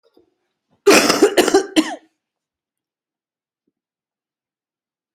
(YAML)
expert_labels:
- quality: good
  cough_type: wet
  dyspnea: false
  wheezing: false
  stridor: false
  choking: false
  congestion: false
  nothing: true
  diagnosis: lower respiratory tract infection
  severity: mild
age: 40
gender: female
respiratory_condition: false
fever_muscle_pain: false
status: symptomatic